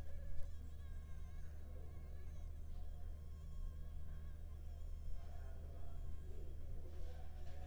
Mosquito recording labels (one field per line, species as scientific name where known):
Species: Anopheles arabiensis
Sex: female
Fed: unfed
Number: one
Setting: cup